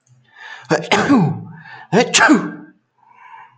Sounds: Sneeze